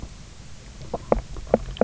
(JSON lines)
{"label": "biophony, knock croak", "recorder": "SoundTrap 300"}